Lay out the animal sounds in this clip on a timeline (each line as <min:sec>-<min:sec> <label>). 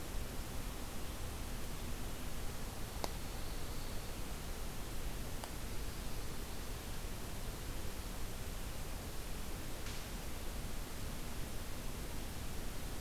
0:02.7-0:04.3 Pine Warbler (Setophaga pinus)